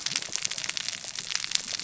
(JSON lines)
{"label": "biophony, cascading saw", "recorder": "SoundTrap 600 or HydroMoth"}